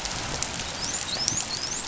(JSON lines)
{"label": "biophony, dolphin", "recorder": "SoundTrap 500"}